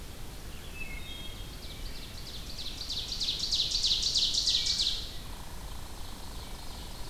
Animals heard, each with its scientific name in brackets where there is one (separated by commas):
Red Squirrel (Tamiasciurus hudsonicus), Ovenbird (Seiurus aurocapilla), Wood Thrush (Hylocichla mustelina)